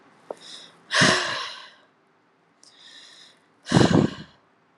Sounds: Sigh